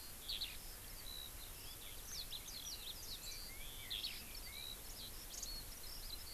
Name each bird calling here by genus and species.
Alauda arvensis